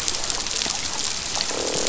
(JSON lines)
{"label": "biophony, croak", "recorder": "SoundTrap 500"}